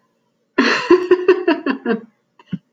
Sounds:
Laughter